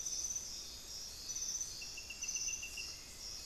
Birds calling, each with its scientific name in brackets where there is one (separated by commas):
Hauxwell's Thrush (Turdus hauxwelli)